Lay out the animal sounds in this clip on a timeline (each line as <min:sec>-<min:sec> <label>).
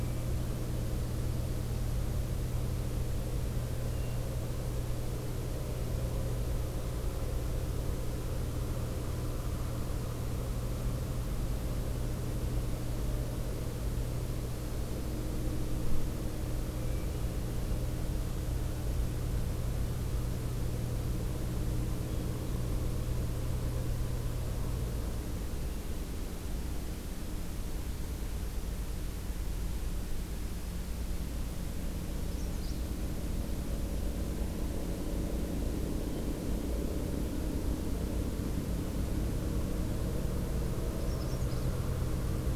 0:03.8-0:04.4 Hermit Thrush (Catharus guttatus)
0:32.1-0:32.9 Magnolia Warbler (Setophaga magnolia)
0:40.9-0:41.7 Magnolia Warbler (Setophaga magnolia)